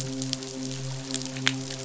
{"label": "biophony, midshipman", "recorder": "SoundTrap 500"}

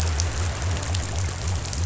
{"label": "biophony", "recorder": "SoundTrap 500"}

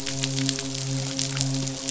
{"label": "biophony, midshipman", "recorder": "SoundTrap 500"}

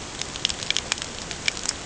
{"label": "ambient", "recorder": "HydroMoth"}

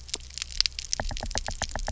{"label": "biophony, knock", "recorder": "SoundTrap 300"}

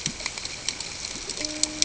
{"label": "ambient", "recorder": "HydroMoth"}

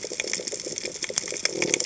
{"label": "biophony", "recorder": "HydroMoth"}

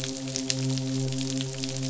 {"label": "biophony, midshipman", "recorder": "SoundTrap 500"}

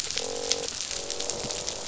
{"label": "biophony, croak", "recorder": "SoundTrap 500"}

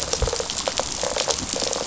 {"label": "biophony, rattle response", "recorder": "SoundTrap 500"}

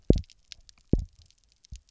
{"label": "biophony, double pulse", "recorder": "SoundTrap 300"}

